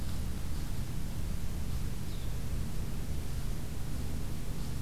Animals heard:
forest ambience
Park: Acadia National Park